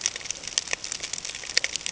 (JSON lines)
{"label": "ambient", "recorder": "HydroMoth"}